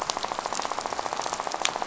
{"label": "biophony, rattle", "recorder": "SoundTrap 500"}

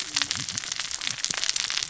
{"label": "biophony, cascading saw", "recorder": "SoundTrap 600 or HydroMoth"}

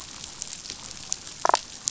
{"label": "biophony, damselfish", "recorder": "SoundTrap 500"}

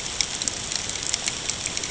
{"label": "ambient", "recorder": "HydroMoth"}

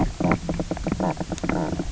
{"label": "biophony, knock croak", "recorder": "SoundTrap 300"}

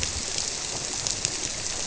{"label": "biophony", "recorder": "SoundTrap 300"}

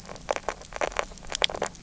{"label": "biophony, grazing", "recorder": "SoundTrap 300"}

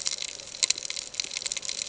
{"label": "ambient", "recorder": "HydroMoth"}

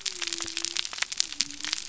{"label": "biophony", "recorder": "SoundTrap 300"}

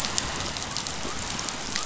{"label": "biophony", "recorder": "SoundTrap 500"}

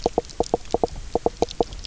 {"label": "biophony", "recorder": "SoundTrap 300"}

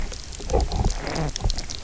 {"label": "biophony, low growl", "recorder": "SoundTrap 300"}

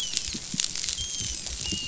{"label": "biophony, dolphin", "recorder": "SoundTrap 500"}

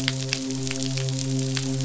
{"label": "biophony, midshipman", "recorder": "SoundTrap 500"}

